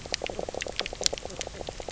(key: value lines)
label: biophony, knock croak
recorder: SoundTrap 300